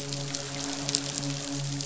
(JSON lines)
{"label": "biophony, midshipman", "recorder": "SoundTrap 500"}